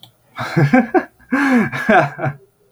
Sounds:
Laughter